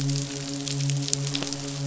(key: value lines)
label: biophony, midshipman
recorder: SoundTrap 500